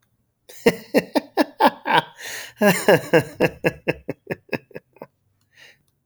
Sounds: Laughter